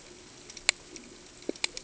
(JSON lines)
{"label": "ambient", "recorder": "HydroMoth"}